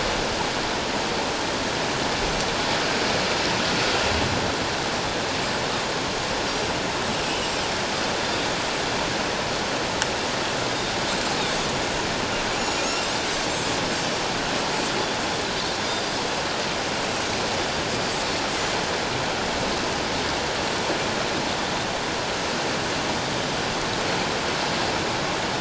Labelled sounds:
12.6	12.9	Pacific white-sided dolphin, 2.7 to 7.0 kHz

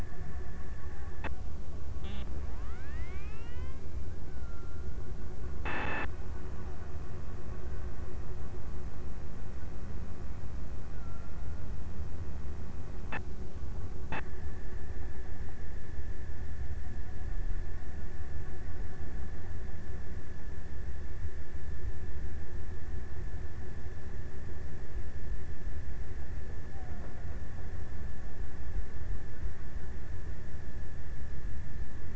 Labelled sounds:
10.7	12.2	killer whale, Bigg's (transient), 1.1 to 1.8 kHz
26.6	27.9	killer whale, Bigg's (transient), 0.51 to 1.0 kHz

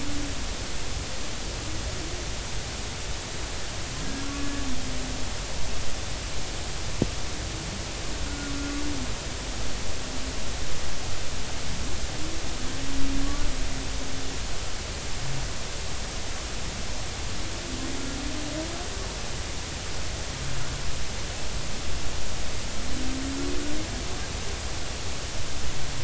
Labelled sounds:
4.4	4.6	humpback whale, 1.66 to 1.73 kHz
8.3	8.5	humpback whale, 1.4 to 1.5 kHz

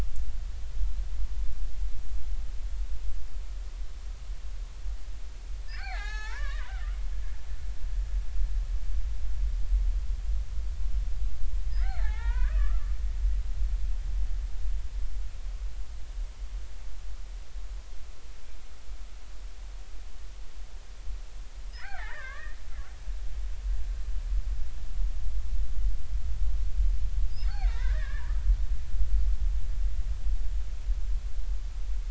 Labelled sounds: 5.7	6.9	killer whale, Bigg's (transient), 0.80 to 4.8 kHz
11.7	13.0	killer whale, Bigg's (transient), 0.80 to 2.6 kHz
21.7	22.6	killer whale, Bigg's (transient), 0.99 to 2.6 kHz
27.5	28.4	killer whale, Bigg's (transient), 0.86 to 2.5 kHz

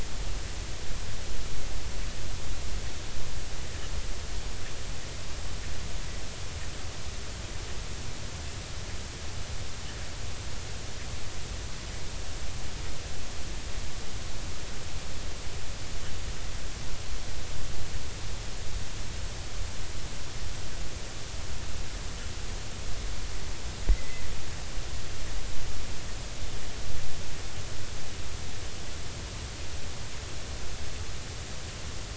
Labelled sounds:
23.9	24.2	killer whale, Bigg's (transient), 1.9 to 2.1 kHz

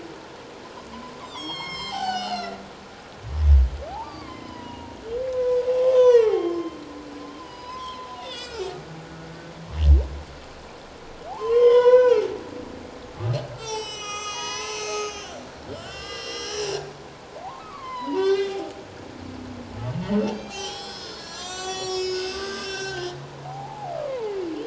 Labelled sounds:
1.2	2.6	humpback whale, 0.78 to 7.9 kHz
3.9	5.0	humpback whale, 0.78 to 5.2 kHz
5.3	6.7	humpback whale, 0.78 to 6.1 kHz
7.4	8.7	humpback whale, 0.88 to 8.0 kHz
11.3	12.3	humpback whale, 0.78 to 6.2 kHz
13.1	15.4	humpback whale, 0.81 to 8.0 kHz
15.7	18.6	humpback whale, 0.91 to 5.7 kHz
20.3	23.1	humpback whale, 0.78 to 8.0 kHz
23.4	24.4	humpback whale, 0.78 to 1.1 kHz

